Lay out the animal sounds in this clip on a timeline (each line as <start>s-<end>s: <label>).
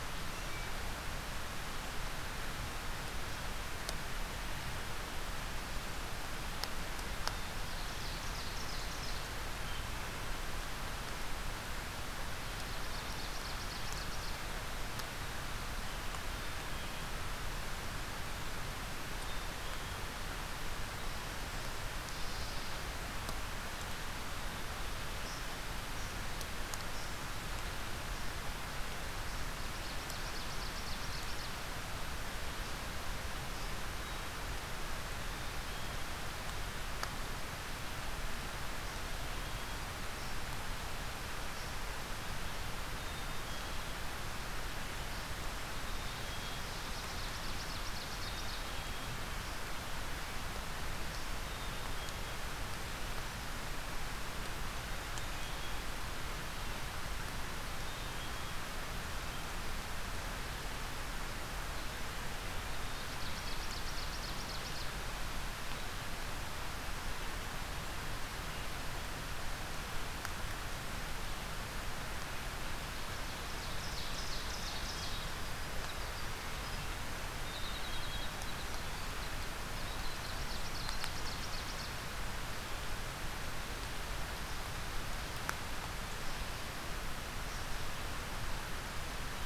7.2s-9.4s: Ovenbird (Seiurus aurocapilla)
12.4s-14.4s: Ovenbird (Seiurus aurocapilla)
16.2s-17.3s: Black-capped Chickadee (Poecile atricapillus)
19.1s-20.3s: Black-capped Chickadee (Poecile atricapillus)
22.0s-22.7s: Hermit Thrush (Catharus guttatus)
29.0s-31.7s: Ovenbird (Seiurus aurocapilla)
35.2s-36.1s: Black-capped Chickadee (Poecile atricapillus)
39.1s-39.9s: Black-capped Chickadee (Poecile atricapillus)
42.9s-43.9s: Black-capped Chickadee (Poecile atricapillus)
45.6s-46.8s: Black-capped Chickadee (Poecile atricapillus)
46.4s-48.8s: Ovenbird (Seiurus aurocapilla)
47.9s-49.3s: Black-capped Chickadee (Poecile atricapillus)
51.3s-52.4s: Black-capped Chickadee (Poecile atricapillus)
57.6s-58.8s: Black-capped Chickadee (Poecile atricapillus)
62.4s-63.7s: Black-capped Chickadee (Poecile atricapillus)
62.4s-64.9s: Ovenbird (Seiurus aurocapilla)
73.5s-75.3s: Ovenbird (Seiurus aurocapilla)
74.9s-81.4s: Winter Wren (Troglodytes hiemalis)
77.2s-78.5s: Black-capped Chickadee (Poecile atricapillus)
79.7s-82.2s: Ovenbird (Seiurus aurocapilla)